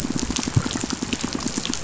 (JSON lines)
{"label": "biophony, pulse", "recorder": "SoundTrap 500"}